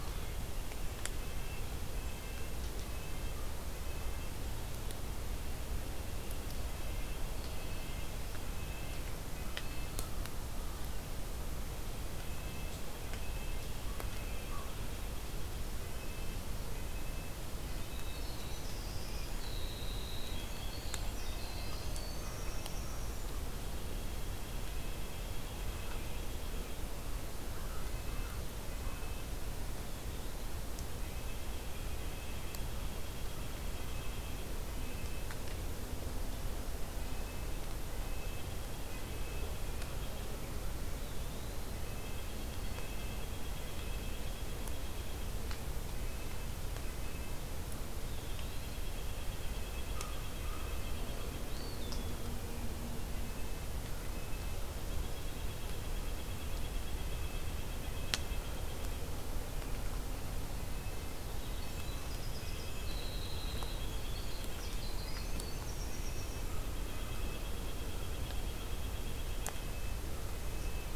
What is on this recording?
White-breasted Nuthatch, Red-breasted Nuthatch, Black-throated Green Warbler, Winter Wren, American Crow, Eastern Wood-Pewee